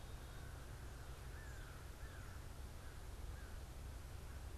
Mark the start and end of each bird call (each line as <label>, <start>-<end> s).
American Crow (Corvus brachyrhynchos), 0.0-4.6 s